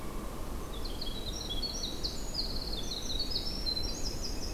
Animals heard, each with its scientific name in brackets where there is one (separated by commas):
Northern Flicker (Colaptes auratus), Winter Wren (Troglodytes hiemalis), Hairy Woodpecker (Dryobates villosus)